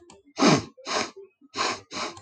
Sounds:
Sniff